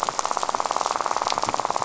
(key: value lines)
label: biophony, rattle
recorder: SoundTrap 500